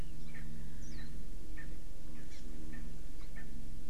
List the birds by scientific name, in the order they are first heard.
Pternistis erckelii, Zosterops japonicus, Chlorodrepanis virens